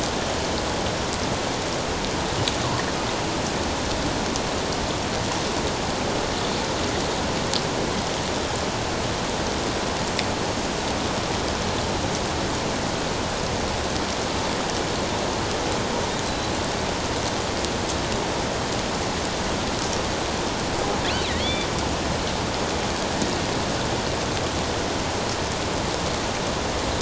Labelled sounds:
16.2	16.5	killer whale, offshore, 3.9 to 4.1 kHz
21.3	21.7	killer whale, offshore, 1.8 to 3.7 kHz

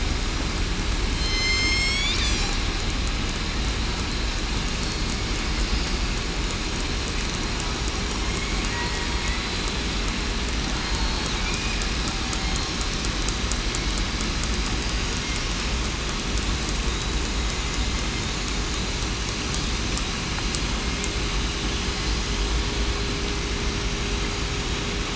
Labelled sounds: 1.2	2.1	killer whale, southern resident, 5.1 to 8.0 kHz
10.8	11.3	killer whale, southern resident, 4.2 to 4.5 kHz

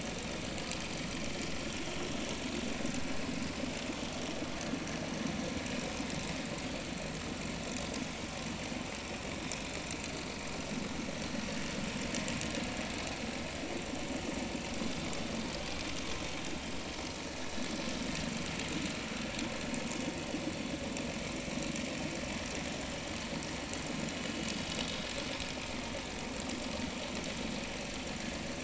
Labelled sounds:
5.8	6.1	vessel noise, 5.1 to 5.3 kHz
16.6	16.9	vessel noise, 5.1 to 5.4 kHz
24.7	25.0	vessel noise, 3.6 to 3.9 kHz

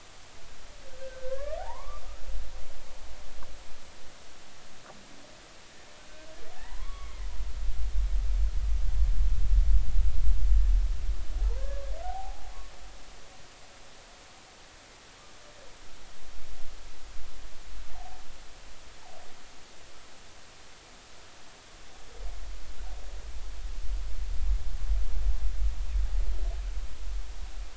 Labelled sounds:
1.0	2.0	humpback whale, 0.80 to 2.0 kHz
6.5	7.3	humpback whale, 0.80 to 2.3 kHz
11.4	12.5	humpback whale, 0.80 to 1.2 kHz
17.9	18.2	humpback whale, 0.80 to 0.96 kHz

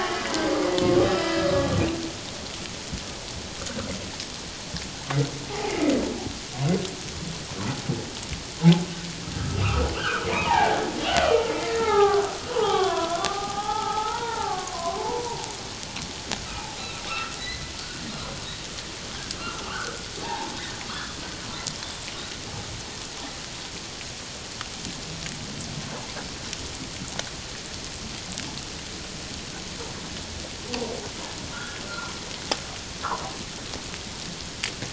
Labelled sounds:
9.4	10.8	humpback whale, 0.78 to 2.8 kHz
11.7	15.4	humpback whale, 0.78 to 3.7 kHz
17.1	17.7	humpback whale, 1.1 to 2.1 kHz
19.6	21.1	humpback whale, 0.78 to 3.5 kHz
31.5	32.1	humpback whale, 1.2 to 1.7 kHz

